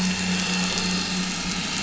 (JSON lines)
{"label": "anthrophony, boat engine", "recorder": "SoundTrap 500"}